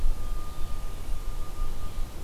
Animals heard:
forest ambience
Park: Marsh-Billings-Rockefeller National Historical Park